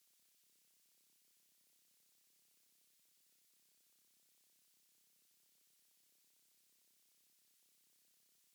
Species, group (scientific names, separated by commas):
Ctenodecticus major, Orthoptera